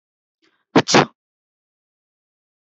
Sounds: Sneeze